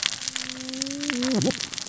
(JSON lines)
{"label": "biophony, cascading saw", "recorder": "SoundTrap 600 or HydroMoth"}